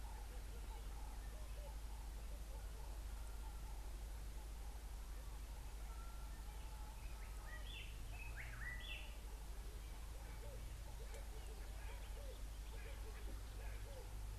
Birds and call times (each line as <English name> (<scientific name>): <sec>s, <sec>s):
White-browed Robin-Chat (Cossypha heuglini): 8.2s
Red-eyed Dove (Streptopelia semitorquata): 12.3s